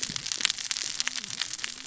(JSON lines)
{"label": "biophony, cascading saw", "recorder": "SoundTrap 600 or HydroMoth"}